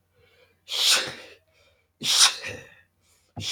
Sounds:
Sneeze